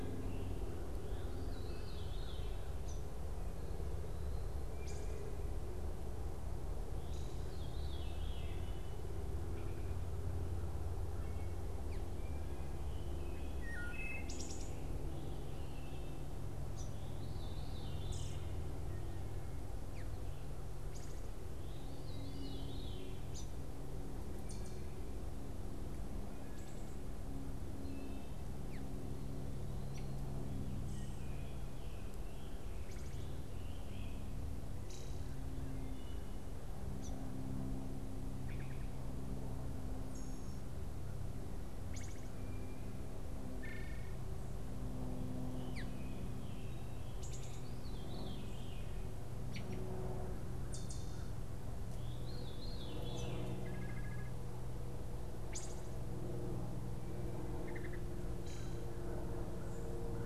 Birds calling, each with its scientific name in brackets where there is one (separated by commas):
Scarlet Tanager (Piranga olivacea), Wood Thrush (Hylocichla mustelina), Great Crested Flycatcher (Myiarchus crinitus), Veery (Catharus fuscescens)